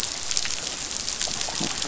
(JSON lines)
{"label": "biophony", "recorder": "SoundTrap 500"}